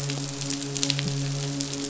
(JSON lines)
{"label": "biophony, midshipman", "recorder": "SoundTrap 500"}